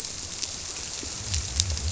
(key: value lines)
label: biophony
recorder: SoundTrap 300